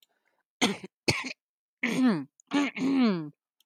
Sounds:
Throat clearing